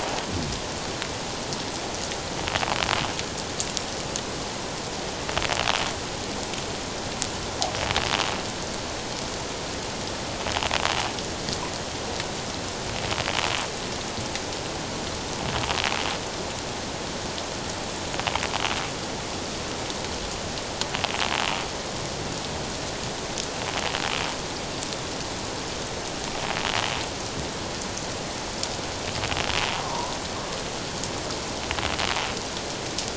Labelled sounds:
29.7	30.1	water noise, 0.88 to 1.1 kHz

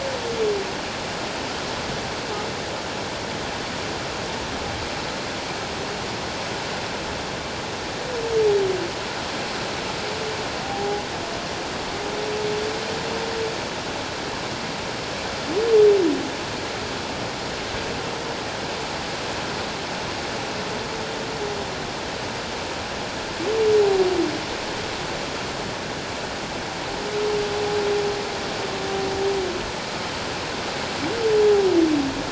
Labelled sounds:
10.6	11.0	humpback whale, 0.78 to 0.91 kHz

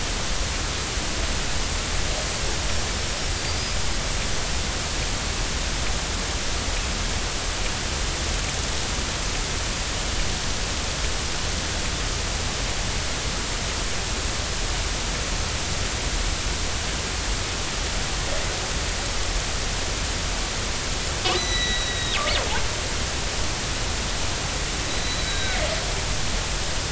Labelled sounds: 21.3	22.2	killer whale, northern resident, G clan, 1.9 to 6.0 kHz
24.9	25.6	killer whale, northern resident, G clan, 1.4 to 4.0 kHz

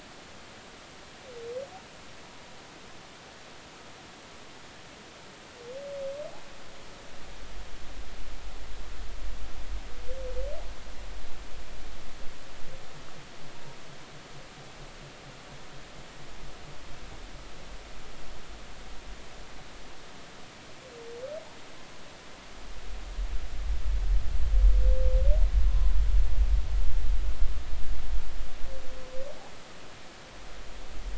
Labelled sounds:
25.7	25.9	humpback whale, 0.99 to 1.1 kHz

